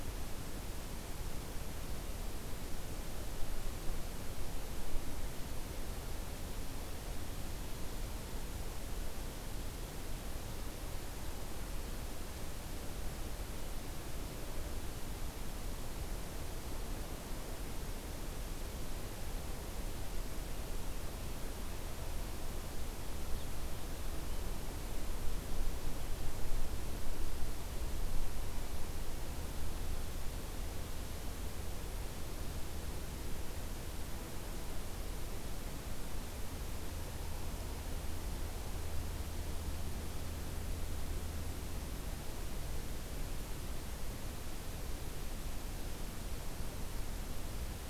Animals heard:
forest ambience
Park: Acadia National Park